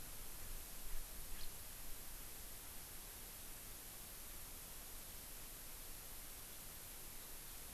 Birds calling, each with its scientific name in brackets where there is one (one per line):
House Finch (Haemorhous mexicanus)